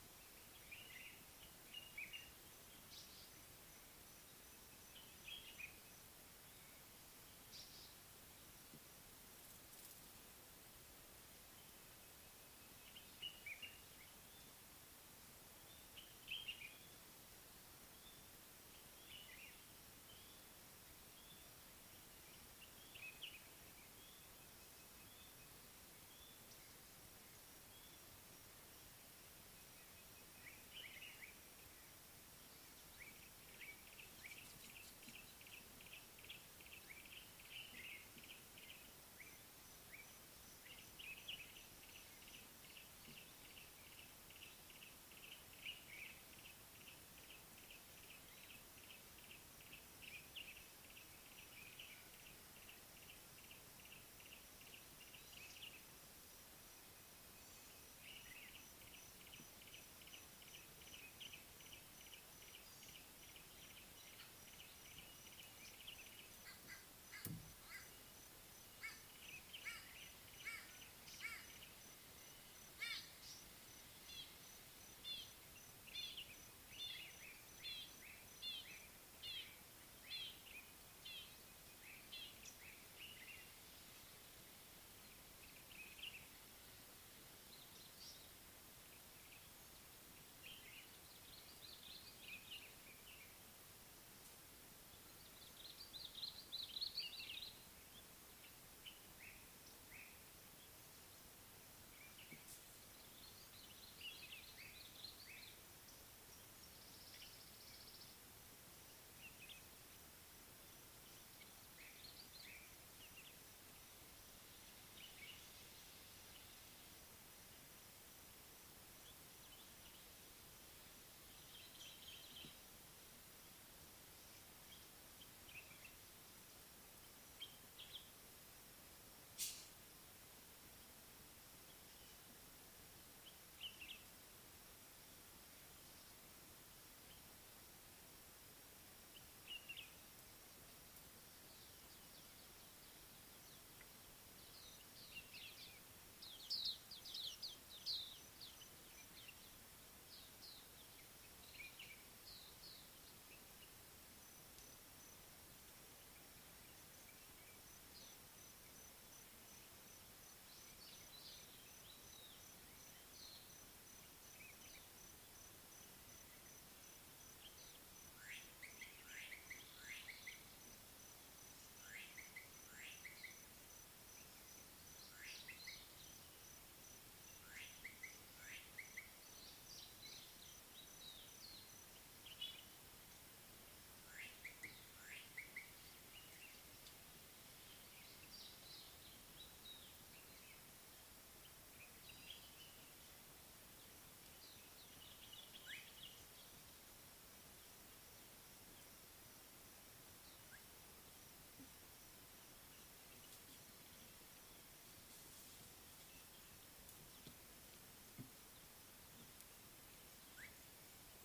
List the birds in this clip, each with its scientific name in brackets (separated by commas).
White-bellied Go-away-bird (Corythaixoides leucogaster), Slate-colored Boubou (Laniarius funebris), Red-faced Crombec (Sylvietta whytii), Pale White-eye (Zosterops flavilateralis), White-browed Robin-Chat (Cossypha heuglini), African Paradise-Flycatcher (Terpsiphone viridis), Common Bulbul (Pycnonotus barbatus), Red-fronted Barbet (Tricholaema diademata), Yellow-breasted Apalis (Apalis flavida)